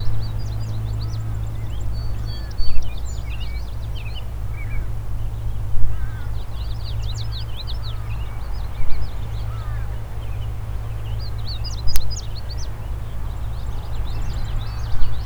Is there only one bird?
no